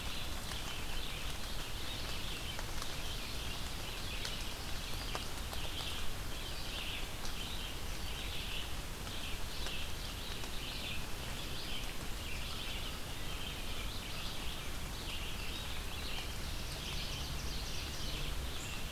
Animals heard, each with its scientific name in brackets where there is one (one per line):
Red-eyed Vireo (Vireo olivaceus)
Ovenbird (Seiurus aurocapilla)